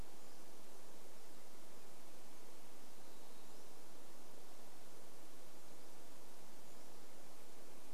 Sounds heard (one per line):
Pacific-slope Flycatcher song